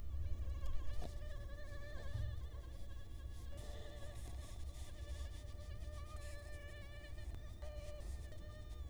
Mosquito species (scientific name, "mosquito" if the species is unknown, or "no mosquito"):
Culex quinquefasciatus